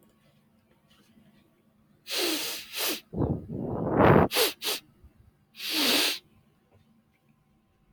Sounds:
Sniff